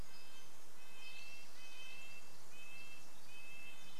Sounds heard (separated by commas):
Spotted Towhee song, warbler song, Red-breasted Nuthatch song, Pacific Wren song